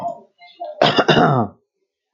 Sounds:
Throat clearing